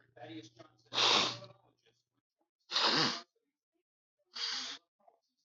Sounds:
Sniff